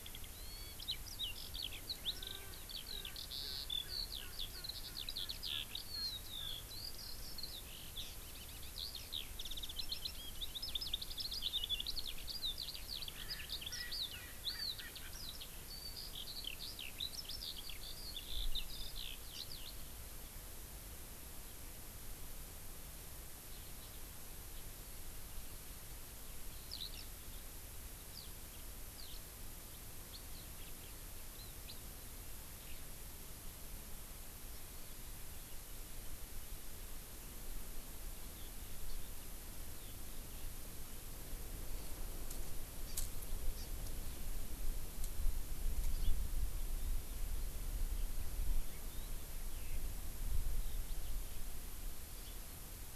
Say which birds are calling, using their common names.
Eurasian Skylark, Erckel's Francolin, House Finch, Hawaii Amakihi